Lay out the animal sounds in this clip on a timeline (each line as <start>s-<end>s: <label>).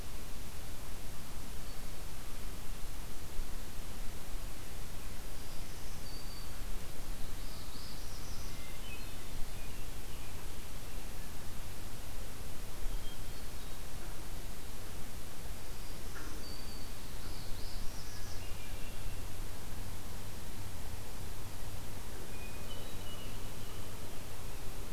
5.2s-6.6s: Black-throated Green Warbler (Setophaga virens)
7.3s-8.6s: Northern Parula (Setophaga americana)
8.5s-9.5s: Hermit Thrush (Catharus guttatus)
9.1s-11.1s: Scarlet Tanager (Piranga olivacea)
12.8s-13.7s: Hermit Thrush (Catharus guttatus)
15.5s-16.9s: Black-throated Green Warbler (Setophaga virens)
17.1s-18.4s: Northern Parula (Setophaga americana)
18.0s-19.4s: Hermit Thrush (Catharus guttatus)
22.3s-23.5s: Hermit Thrush (Catharus guttatus)